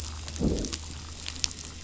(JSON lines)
{"label": "biophony, growl", "recorder": "SoundTrap 500"}